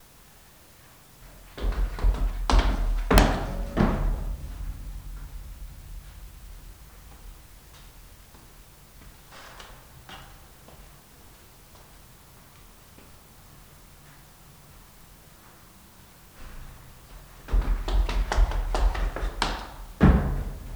Is there stomping?
yes